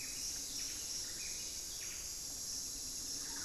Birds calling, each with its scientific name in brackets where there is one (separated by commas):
Pygmy Antwren (Myrmotherula brachyura), Buff-breasted Wren (Cantorchilus leucotis)